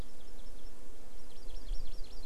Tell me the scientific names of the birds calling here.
Chlorodrepanis virens